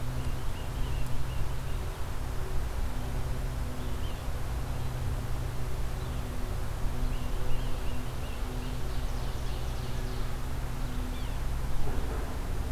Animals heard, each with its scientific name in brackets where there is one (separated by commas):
Tufted Titmouse (Baeolophus bicolor), Yellow-bellied Sapsucker (Sphyrapicus varius), Ovenbird (Seiurus aurocapilla)